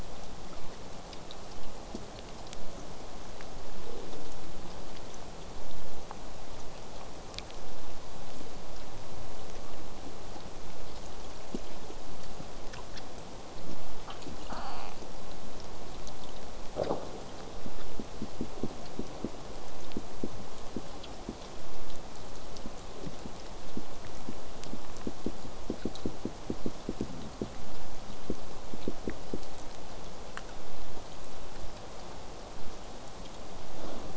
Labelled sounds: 3.8	4.7	killer whale, southern resident, J pod, call S04, 0.12 to 1.3 kHz

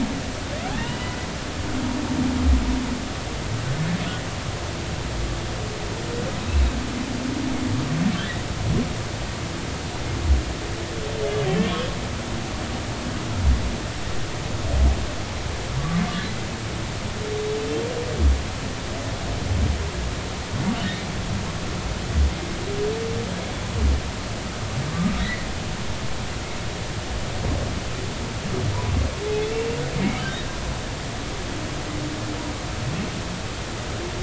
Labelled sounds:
0.6	1.2	humpback whale, 1.3 to 3.0 kHz
25.2	25.5	humpback whale, 1.8 to 2.1 kHz
29.3	29.7	humpback whale, 2.5 to 2.8 kHz
30.0	30.2	humpback whale, 2.1 to 2.3 kHz

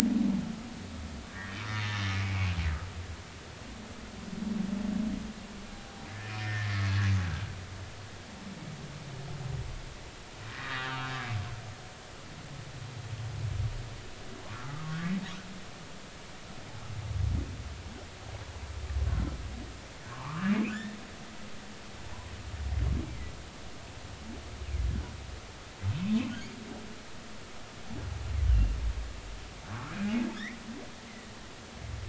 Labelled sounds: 1.3	1.9	humpback whale, 1.6 to 4.4 kHz
6.2	6.7	humpback whale, 1.7 to 2.6 kHz
10.5	10.9	humpback whale, 1.0 to 3.8 kHz
14.5	15.1	humpback whale, 1.1 to 1.5 kHz
20.1	21.0	humpback whale, 0.80 to 1.9 kHz
28.5	28.8	humpback whale, 2.7 to 3.0 kHz
29.7	30.0	humpback whale, 1.0 to 1.4 kHz

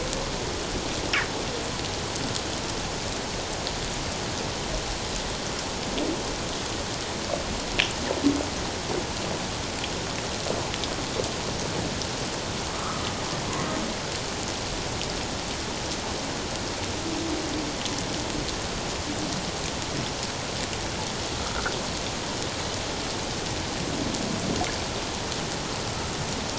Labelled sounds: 12.7	13.0	humpback whale, 1.1 to 1.3 kHz

